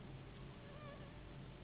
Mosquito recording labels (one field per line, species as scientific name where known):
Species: Anopheles gambiae s.s.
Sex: female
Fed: unfed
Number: one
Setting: insect culture